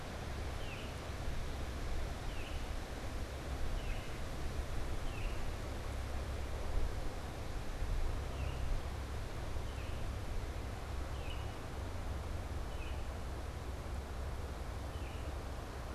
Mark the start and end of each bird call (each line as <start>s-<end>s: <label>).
0.0s-15.9s: Baltimore Oriole (Icterus galbula)